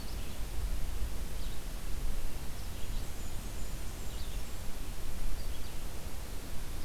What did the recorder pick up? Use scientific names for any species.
Vireo olivaceus, Setophaga fusca